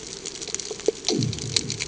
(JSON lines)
{"label": "anthrophony, bomb", "recorder": "HydroMoth"}